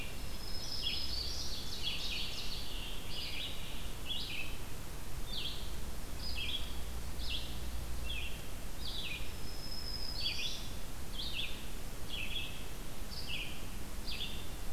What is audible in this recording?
Black-throated Green Warbler, Red-eyed Vireo, Ovenbird, Scarlet Tanager